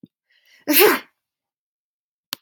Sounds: Sneeze